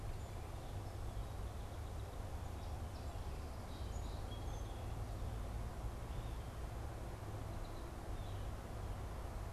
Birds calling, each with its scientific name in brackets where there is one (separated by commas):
Song Sparrow (Melospiza melodia), Blue Jay (Cyanocitta cristata)